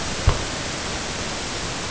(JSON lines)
{"label": "ambient", "recorder": "HydroMoth"}